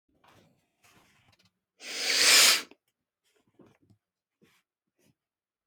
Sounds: Sniff